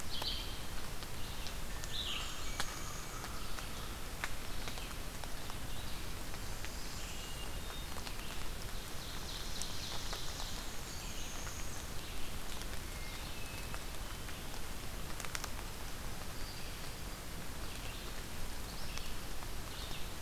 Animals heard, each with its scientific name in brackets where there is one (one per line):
Black-throated Green Warbler (Setophaga virens)
Blackburnian Warbler (Setophaga fusca)
American Crow (Corvus brachyrhynchos)
Ovenbird (Seiurus aurocapilla)
Hermit Thrush (Catharus guttatus)
Northern Parula (Setophaga americana)
Red-eyed Vireo (Vireo olivaceus)